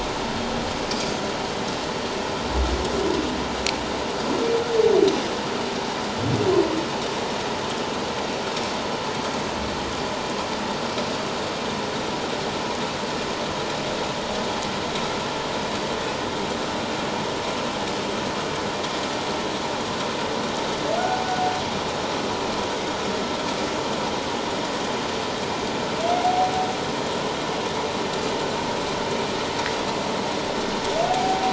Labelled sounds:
31.1	31.5	humpback whale, 0.78 to 0.81 kHz

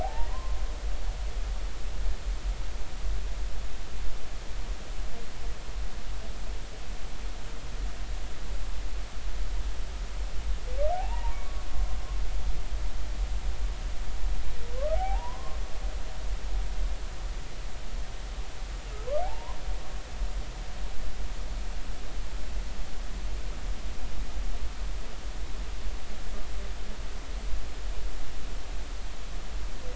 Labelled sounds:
0.0	0.6	humpback whale, 0.80 to 2.0 kHz
10.9	11.7	humpback whale, 0.80 to 1.2 kHz
14.9	15.6	humpback whale, 0.80 to 1.2 kHz
19.2	19.6	humpback whale, 0.80 to 1.1 kHz

